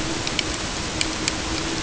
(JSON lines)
{"label": "ambient", "recorder": "HydroMoth"}